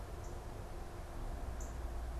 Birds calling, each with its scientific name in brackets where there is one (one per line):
Northern Cardinal (Cardinalis cardinalis)